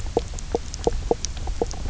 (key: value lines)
label: biophony, knock croak
recorder: SoundTrap 300